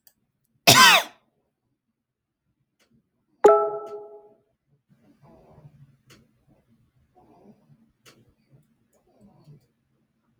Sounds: Cough